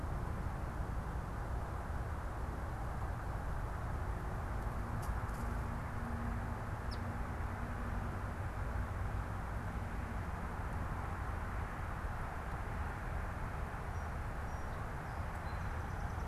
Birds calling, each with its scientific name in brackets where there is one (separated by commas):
Song Sparrow (Melospiza melodia), Eastern Phoebe (Sayornis phoebe)